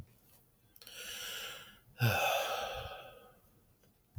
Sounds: Sigh